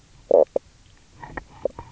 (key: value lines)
label: biophony, knock croak
recorder: SoundTrap 300